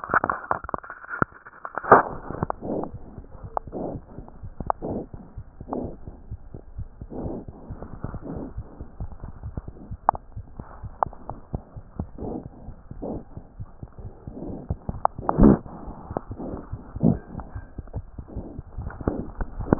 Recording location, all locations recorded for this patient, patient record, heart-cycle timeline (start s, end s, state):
aortic valve (AV)
aortic valve (AV)+mitral valve (MV)
#Age: Infant
#Sex: Male
#Height: 55.0 cm
#Weight: 5.3 kg
#Pregnancy status: False
#Murmur: Absent
#Murmur locations: nan
#Most audible location: nan
#Systolic murmur timing: nan
#Systolic murmur shape: nan
#Systolic murmur grading: nan
#Systolic murmur pitch: nan
#Systolic murmur quality: nan
#Diastolic murmur timing: nan
#Diastolic murmur shape: nan
#Diastolic murmur grading: nan
#Diastolic murmur pitch: nan
#Diastolic murmur quality: nan
#Outcome: Normal
#Campaign: 2015 screening campaign
0.00	2.84	unannotated
2.84	2.91	diastole
2.91	3.00	S1
3.00	3.15	systole
3.15	3.23	S2
3.23	3.42	diastole
3.42	3.50	S1
3.50	3.66	systole
3.66	3.71	S2
3.71	3.93	diastole
3.93	4.00	S1
4.00	4.18	systole
4.18	4.23	S2
4.23	4.42	diastole
4.42	4.51	S1
4.51	4.64	systole
4.64	4.70	S2
4.70	4.90	diastole
4.90	5.04	S1
5.04	5.13	systole
5.13	5.20	S2
5.20	5.37	diastole
5.37	5.42	S1
5.42	5.59	systole
5.59	5.66	S2
5.66	5.81	diastole
5.81	5.92	S1
5.92	6.07	systole
6.07	6.13	S2
6.13	6.30	diastole
6.30	6.38	S1
6.38	6.53	systole
6.53	6.60	S2
6.60	6.78	diastole
6.78	6.88	S1
6.88	7.02	systole
7.02	7.08	S2
7.08	7.23	diastole
7.23	7.32	S1
7.32	7.46	systole
7.46	7.52	S2
7.52	7.70	diastole
7.70	7.78	S1
7.78	7.92	systole
7.92	7.98	S2
7.98	8.12	diastole
8.12	8.20	S1
8.20	8.36	systole
8.36	8.44	S2
8.44	8.56	diastole
8.56	8.64	S1
8.64	8.80	systole
8.80	8.85	S2
8.85	8.99	diastole
8.99	9.09	S1
9.09	9.22	systole
9.22	9.29	S2
9.29	9.32	diastole
9.32	19.79	unannotated